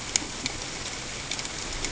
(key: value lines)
label: ambient
recorder: HydroMoth